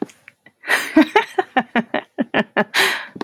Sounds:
Laughter